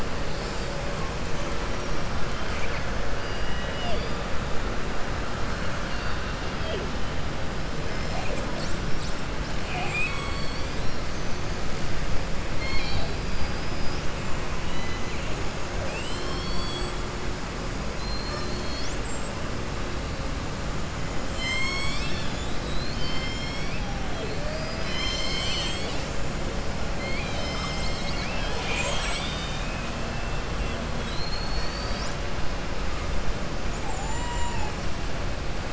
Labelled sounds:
2.3	2.9	killer whale, southern resident, 1.1 to 3.2 kHz
5.8	6.8	killer whale, southern resident, 2.0 to 5.1 kHz
9.6	11.0	killer whale, southern resident, 0.73 to 8.0 kHz
13.3	14.1	killer whale, southern resident, 4.8 to 5.9 kHz
14.6	15.3	killer whale, southern resident, 2.0 to 4.0 kHz
30.9	32.2	killer whale, southern resident, 3.3 to 7.4 kHz

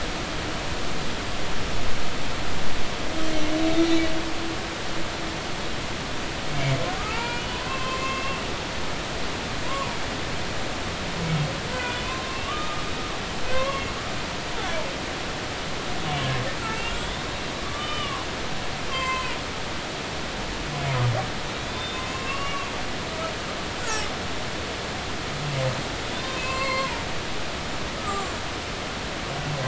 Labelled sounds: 3.8	4.1	humpback whale, 2.2 to 2.4 kHz
7.0	8.4	humpback whale, 0.86 to 3.0 kHz
9.6	10.0	humpback whale, 0.93 to 1.2 kHz
11.7	12.8	humpback whale, 0.93 to 3.5 kHz
13.5	13.9	humpback whale, 0.99 to 2.2 kHz
16.6	17.3	humpback whale, 2.2 to 3.7 kHz
17.5	18.2	humpback whale, 0.99 to 3.7 kHz
18.9	19.4	humpback whale, 0.93 to 2.8 kHz
21.6	22.7	humpback whale, 1.0 to 3.6 kHz
26.1	27.0	humpback whale, 0.86 to 4.4 kHz
28.0	28.3	humpback whale, 1.1 to 1.3 kHz

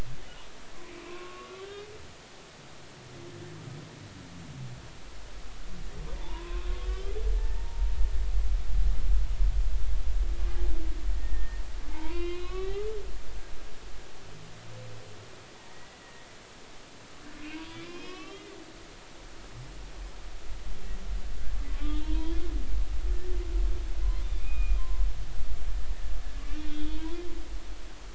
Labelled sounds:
1.1	1.7	humpback whale, 0.96 to 1.2 kHz
6.2	7.9	humpback whale, 0.83 to 3.3 kHz
11.1	12.8	humpback whale, 0.83 to 5.2 kHz
15.6	16.3	humpback whale, 1.8 to 2.0 kHz
17.5	18.5	humpback whale, 0.93 to 4.8 kHz
21.7	22.4	humpback whale, 0.90 to 3.5 kHz
24.4	25.0	humpback whale, 0.99 to 2.6 kHz
26.4	27.2	humpback whale, 0.90 to 3.9 kHz

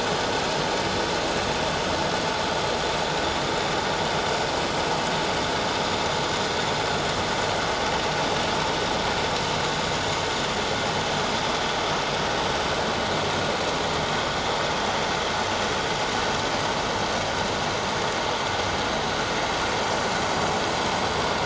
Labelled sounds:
3.5	3.9	vessel noise, 7.0 to 7.2 kHz

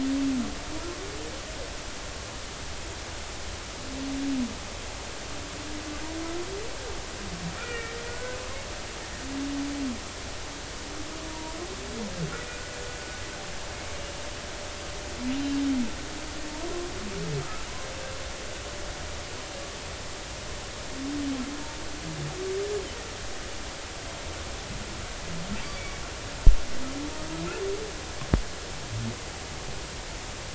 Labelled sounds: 7.6	8.4	humpback whale, 1.3 to 2.5 kHz
11.3	11.6	humpback whale, 0.90 to 0.99 kHz
25.7	26.0	humpback whale, 2.2 to 2.3 kHz

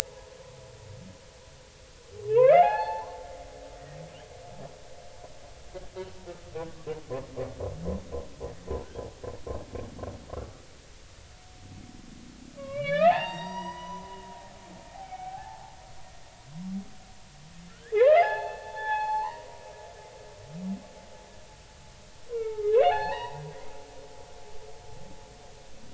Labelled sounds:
2.3	3.2	humpback whale, 0.80 to 4.5 kHz
10.4	10.6	humpback whale, 1.1 to 1.3 kHz
12.6	14.2	humpback whale, 0.80 to 7.6 kHz
14.9	15.7	humpback whale, 0.80 to 2.4 kHz
17.7	19.6	humpback whale, 0.80 to 4.4 kHz
22.3	23.4	humpback whale, 0.80 to 4.4 kHz

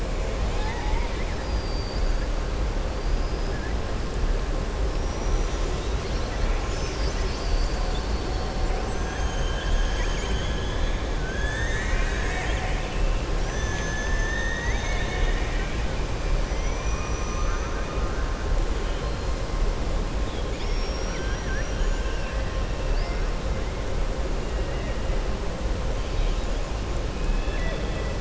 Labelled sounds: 0.3	2.2	killer whale, southern resident, 0.83 to 7.2 kHz
4.9	5.9	killer whale, southern resident, 5.2 to 7.7 kHz
11.2	15.8	killer whale, southern resident, 0.95 to 7.0 kHz
16.5	18.2	killer whale, southern resident, 1.1 to 3.2 kHz
27.2	28.1	killer whale, southern resident, 1.7 to 3.5 kHz

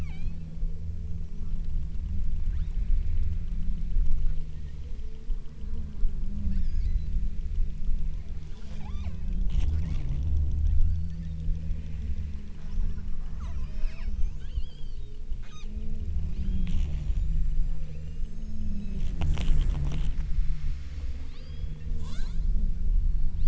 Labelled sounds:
0.0	0.6	killer whale, southern Alaska resident, 0.70 to 8.0 kHz
6.5	7.2	killer whale, southern Alaska resident, 1.2 to 8.0 kHz
8.6	9.4	killer whale, southern Alaska resident, 0.57 to 8.0 kHz
9.8	10.3	killer whale, southern Alaska resident, 1.1 to 8.0 kHz
10.7	11.6	killer whale, southern Alaska resident, 0.68 to 5.3 kHz
13.4	16.0	killer whale, southern Alaska resident, 0.53 to 8.0 kHz
16.4	19.2	killer whale, southern Alaska resident, 1.3 to 8.0 kHz
21.4	22.8	killer whale, southern Alaska resident, 0.34 to 8.0 kHz

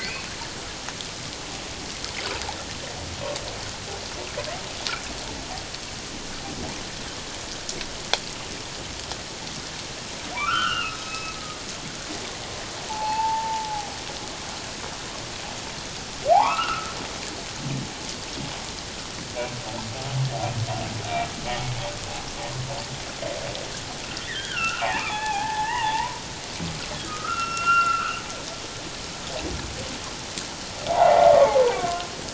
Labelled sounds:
0.0	0.3	humpback whale, 4.2 to 4.6 kHz
10.3	11.4	humpback whale, 0.78 to 3.9 kHz
12.9	13.9	humpback whale, 0.78 to 1.0 kHz
16.3	17.0	humpback whale, 0.78 to 2.9 kHz
21.5	21.7	humpback whale, 2.2 to 2.3 kHz
24.0	26.1	humpback whale, 0.78 to 3.9 kHz
27.1	28.2	humpback whale, 1.1 to 2.8 kHz
30.9	31.6	humpback whale, 0.78 to 2.1 kHz

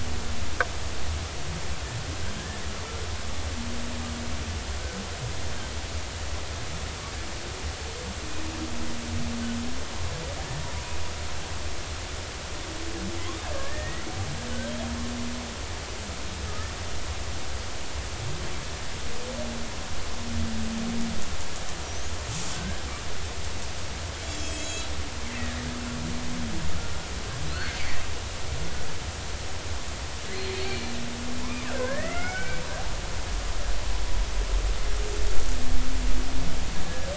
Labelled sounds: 13.5	14.0	killer whale, Bigg's (transient), 1.6 to 2.0 kHz
21.8	22.8	killer whale, Bigg's (transient), 1.5 to 6.3 kHz
24.2	24.9	killer whale, Bigg's (transient), 2.5 to 8.0 kHz
27.5	27.7	killer whale, Bigg's (transient), 3.9 to 4.5 kHz
30.3	30.9	killer whale, Bigg's (transient), 2.3 to 4.5 kHz
31.4	32.6	killer whale, Bigg's (transient), 0.93 to 2.4 kHz

